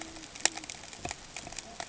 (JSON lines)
{"label": "ambient", "recorder": "HydroMoth"}